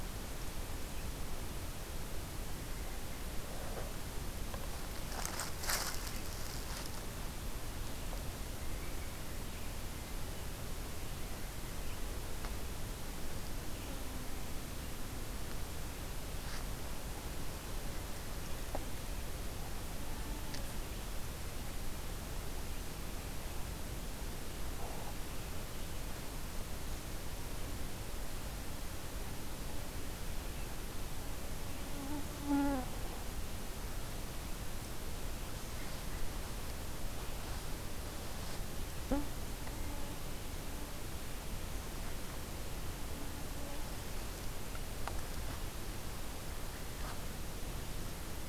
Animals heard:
forest ambience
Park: Katahdin Woods and Waters National Monument